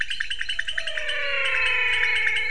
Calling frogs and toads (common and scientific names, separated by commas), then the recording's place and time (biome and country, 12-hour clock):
pointedbelly frog (Leptodactylus podicipinus), menwig frog (Physalaemus albonotatus)
Cerrado, Brazil, 6:00pm